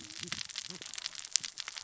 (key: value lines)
label: biophony, cascading saw
recorder: SoundTrap 600 or HydroMoth